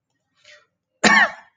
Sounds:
Cough